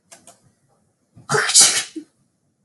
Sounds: Sneeze